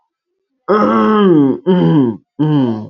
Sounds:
Throat clearing